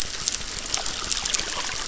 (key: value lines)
label: biophony, crackle
recorder: SoundTrap 600